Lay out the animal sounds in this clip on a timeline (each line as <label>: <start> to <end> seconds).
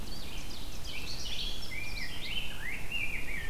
Ovenbird (Seiurus aurocapilla): 0.0 to 1.9 seconds
Red-eyed Vireo (Vireo olivaceus): 0.0 to 3.5 seconds
Rose-breasted Grosbeak (Pheucticus ludovicianus): 0.9 to 3.5 seconds